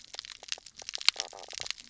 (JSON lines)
{"label": "biophony, knock croak", "recorder": "SoundTrap 300"}